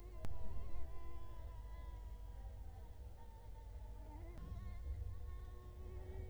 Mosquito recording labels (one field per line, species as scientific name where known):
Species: Culex quinquefasciatus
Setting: cup